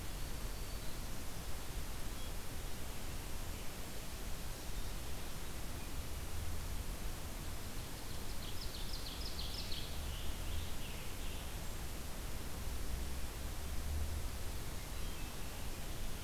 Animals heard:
Ovenbird (Seiurus aurocapilla), Black-throated Green Warbler (Setophaga virens), Scarlet Tanager (Piranga olivacea), Wood Thrush (Hylocichla mustelina)

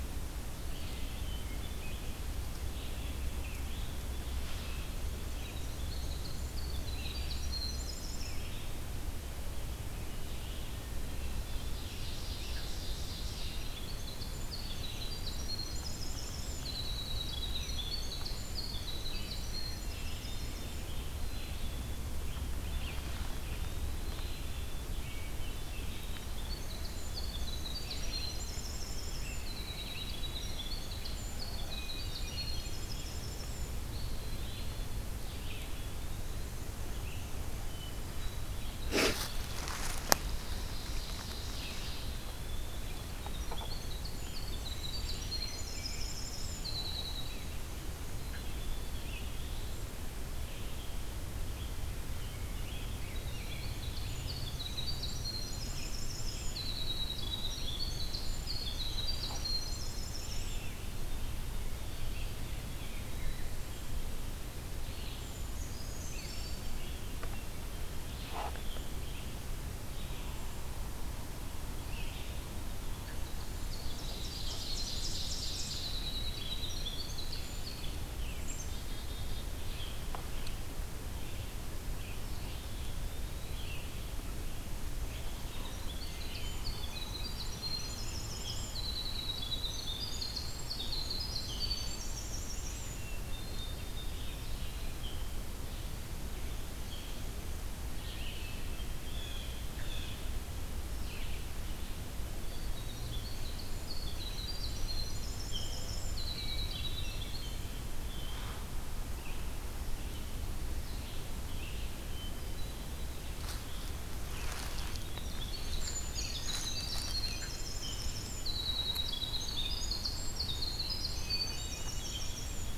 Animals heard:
Winter Wren (Troglodytes hiemalis), Eastern Wood-Pewee (Contopus virens), Hermit Thrush (Catharus guttatus), Red-eyed Vireo (Vireo olivaceus), Ovenbird (Seiurus aurocapilla), Blue Jay (Cyanocitta cristata), Brown Creeper (Certhia americana), Rose-breasted Grosbeak (Pheucticus ludovicianus), Black-capped Chickadee (Poecile atricapillus)

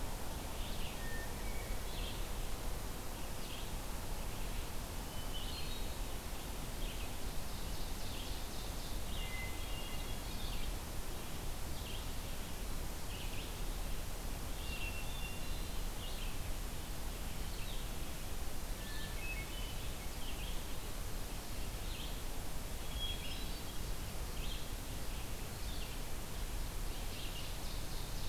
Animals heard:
Ovenbird (Seiurus aurocapilla), Red-eyed Vireo (Vireo olivaceus), Hermit Thrush (Catharus guttatus)

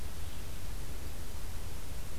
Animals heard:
Red-eyed Vireo (Vireo olivaceus)

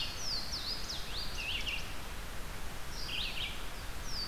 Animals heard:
Louisiana Waterthrush (Parkesia motacilla), Red-eyed Vireo (Vireo olivaceus)

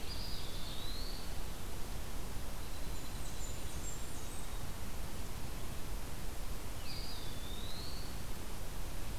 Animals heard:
Blackburnian Warbler (Setophaga fusca), Eastern Wood-Pewee (Contopus virens), Dark-eyed Junco (Junco hyemalis)

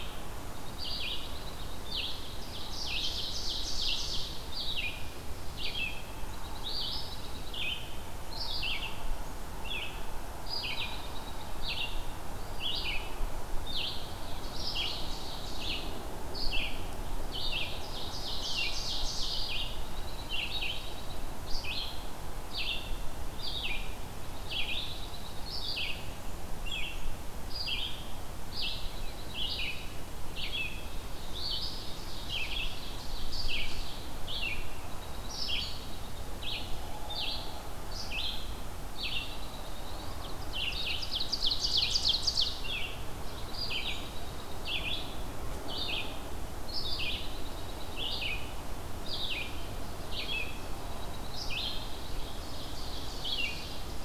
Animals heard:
Dark-eyed Junco (Junco hyemalis), Red-eyed Vireo (Vireo olivaceus), Ovenbird (Seiurus aurocapilla)

